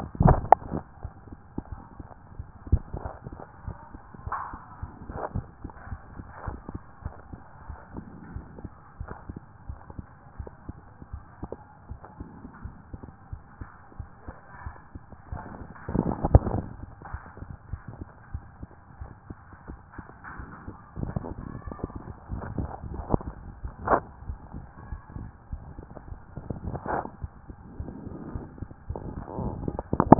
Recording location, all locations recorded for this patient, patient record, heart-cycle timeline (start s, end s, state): mitral valve (MV)
aortic valve (AV)+pulmonary valve (PV)+tricuspid valve (TV)+mitral valve (MV)
#Age: Child
#Sex: Male
#Height: 151.0 cm
#Weight: 48.8 kg
#Pregnancy status: False
#Murmur: Absent
#Murmur locations: nan
#Most audible location: nan
#Systolic murmur timing: nan
#Systolic murmur shape: nan
#Systolic murmur grading: nan
#Systolic murmur pitch: nan
#Systolic murmur quality: nan
#Diastolic murmur timing: nan
#Diastolic murmur shape: nan
#Diastolic murmur grading: nan
#Diastolic murmur pitch: nan
#Diastolic murmur quality: nan
#Outcome: Abnormal
#Campaign: 2014 screening campaign
0.00	5.90	unannotated
5.90	6.00	S1
6.00	6.16	systole
6.16	6.24	S2
6.24	6.46	diastole
6.46	6.58	S1
6.58	6.72	systole
6.72	6.82	S2
6.82	7.04	diastole
7.04	7.14	S1
7.14	7.30	systole
7.30	7.40	S2
7.40	7.66	diastole
7.66	7.78	S1
7.78	7.94	systole
7.94	8.04	S2
8.04	8.32	diastole
8.32	8.44	S1
8.44	8.62	systole
8.62	8.72	S2
8.72	9.00	diastole
9.00	9.10	S1
9.10	9.28	systole
9.28	9.38	S2
9.38	9.68	diastole
9.68	9.78	S1
9.78	9.96	systole
9.96	10.06	S2
10.06	10.38	diastole
10.38	10.50	S1
10.50	10.68	systole
10.68	10.76	S2
10.76	11.12	diastole
11.12	11.22	S1
11.22	11.42	systole
11.42	11.50	S2
11.50	11.90	diastole
11.90	12.00	S1
12.00	12.18	systole
12.18	12.28	S2
12.28	12.64	diastole
12.64	12.74	S1
12.74	12.94	systole
12.94	13.02	S2
13.02	13.32	diastole
13.32	13.42	S1
13.42	13.60	systole
13.60	13.70	S2
13.70	13.98	diastole
13.98	14.08	S1
14.08	14.26	systole
14.26	14.36	S2
14.36	14.64	diastole
14.64	14.74	S1
14.74	14.94	systole
14.94	15.02	S2
15.02	15.30	diastole
15.30	30.19	unannotated